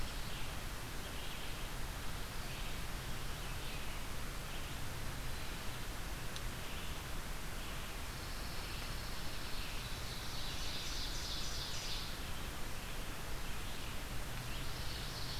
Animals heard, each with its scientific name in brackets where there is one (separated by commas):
Pine Warbler (Setophaga pinus), Red-eyed Vireo (Vireo olivaceus), Ovenbird (Seiurus aurocapilla)